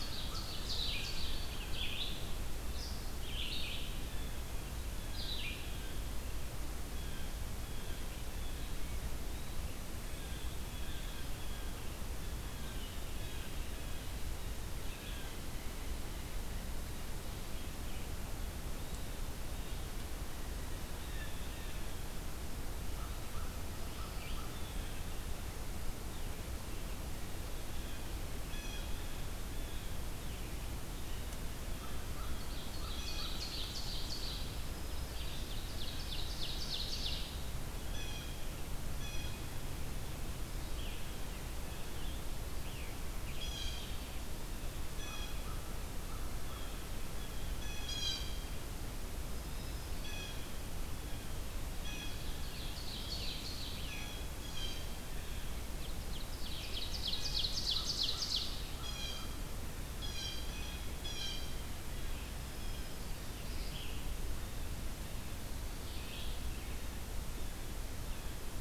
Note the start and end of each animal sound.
[0.00, 0.59] American Crow (Corvus brachyrhynchos)
[0.00, 1.42] Ovenbird (Seiurus aurocapilla)
[0.00, 5.68] Red-eyed Vireo (Vireo olivaceus)
[0.00, 6.23] Blue Jay (Cyanocitta cristata)
[6.92, 29.97] Blue Jay (Cyanocitta cristata)
[22.86, 24.99] American Crow (Corvus brachyrhynchos)
[31.01, 33.42] Blue Jay (Cyanocitta cristata)
[31.62, 33.47] American Crow (Corvus brachyrhynchos)
[32.00, 34.50] Ovenbird (Seiurus aurocapilla)
[34.40, 35.64] Black-throated Green Warbler (Setophaga virens)
[34.78, 37.38] Ovenbird (Seiurus aurocapilla)
[37.74, 39.59] Blue Jay (Cyanocitta cristata)
[40.42, 43.51] Scarlet Tanager (Piranga olivacea)
[43.28, 50.46] Blue Jay (Cyanocitta cristata)
[45.23, 46.86] American Crow (Corvus brachyrhynchos)
[49.31, 50.29] Black-throated Green Warbler (Setophaga virens)
[51.66, 52.27] Blue Jay (Cyanocitta cristata)
[52.13, 53.91] Ovenbird (Seiurus aurocapilla)
[53.09, 54.18] Scarlet Tanager (Piranga olivacea)
[53.78, 54.94] Blue Jay (Cyanocitta cristata)
[55.55, 58.56] Ovenbird (Seiurus aurocapilla)
[57.00, 63.53] Blue Jay (Cyanocitta cristata)
[62.25, 63.38] Black-throated Green Warbler (Setophaga virens)
[63.47, 68.60] Red-eyed Vireo (Vireo olivaceus)
[67.02, 68.60] Blue Jay (Cyanocitta cristata)

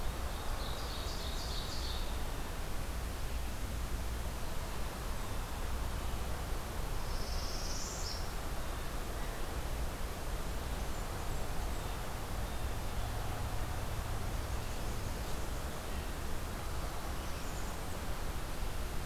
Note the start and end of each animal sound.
[0.00, 2.25] Ovenbird (Seiurus aurocapilla)
[6.80, 8.59] Northern Parula (Setophaga americana)
[10.55, 11.99] Blackburnian Warbler (Setophaga fusca)
[11.59, 13.35] Blue Jay (Cyanocitta cristata)
[16.92, 18.07] Black-capped Chickadee (Poecile atricapillus)

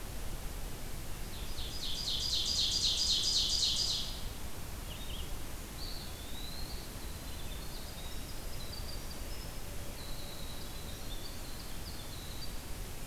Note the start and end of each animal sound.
[1.24, 4.51] Ovenbird (Seiurus aurocapilla)
[4.85, 13.07] Winter Wren (Troglodytes hiemalis)
[5.55, 7.05] Eastern Wood-Pewee (Contopus virens)

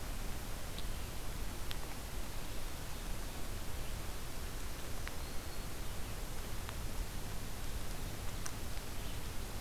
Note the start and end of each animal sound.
[4.43, 5.89] Black-throated Green Warbler (Setophaga virens)

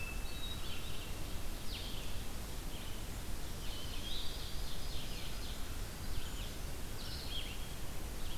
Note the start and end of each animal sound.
[0.00, 0.95] American Crow (Corvus brachyrhynchos)
[0.00, 8.38] Red-eyed Vireo (Vireo olivaceus)
[3.61, 5.08] Hermit Thrush (Catharus guttatus)
[3.74, 5.96] Ovenbird (Seiurus aurocapilla)

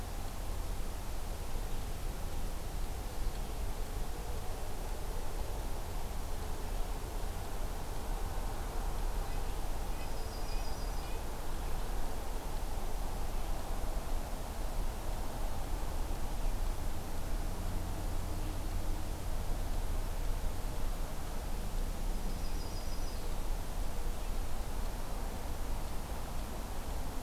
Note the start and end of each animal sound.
[9.15, 11.25] Red-breasted Nuthatch (Sitta canadensis)
[9.95, 11.20] Yellow-rumped Warbler (Setophaga coronata)
[22.14, 23.32] Yellow-rumped Warbler (Setophaga coronata)

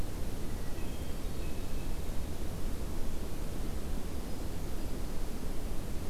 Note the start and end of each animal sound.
[0.55, 2.12] Hermit Thrush (Catharus guttatus)

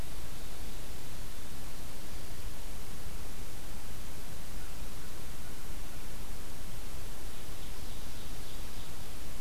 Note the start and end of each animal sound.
[7.07, 9.04] Ovenbird (Seiurus aurocapilla)

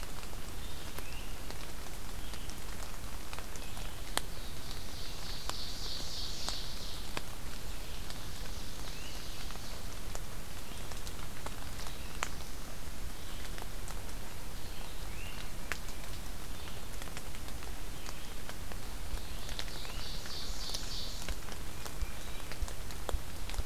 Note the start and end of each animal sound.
[0.00, 23.66] Red-eyed Vireo (Vireo olivaceus)
[0.83, 1.50] Great Crested Flycatcher (Myiarchus crinitus)
[4.05, 7.15] Ovenbird (Seiurus aurocapilla)
[7.49, 10.16] Ovenbird (Seiurus aurocapilla)
[8.78, 9.34] Great Crested Flycatcher (Myiarchus crinitus)
[11.58, 12.89] Black-throated Blue Warbler (Setophaga caerulescens)
[14.93, 15.56] Great Crested Flycatcher (Myiarchus crinitus)
[19.08, 21.35] Ovenbird (Seiurus aurocapilla)
[19.68, 20.14] Great Crested Flycatcher (Myiarchus crinitus)
[20.33, 23.66] Ruffed Grouse (Bonasa umbellus)
[21.50, 22.66] Tufted Titmouse (Baeolophus bicolor)

